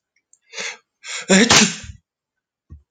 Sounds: Sneeze